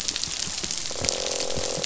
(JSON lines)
{"label": "biophony, croak", "recorder": "SoundTrap 500"}